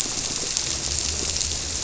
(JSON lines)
{"label": "biophony", "recorder": "SoundTrap 300"}